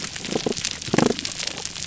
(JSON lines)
{"label": "biophony", "recorder": "SoundTrap 300"}